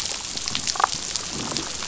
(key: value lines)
label: biophony
recorder: SoundTrap 500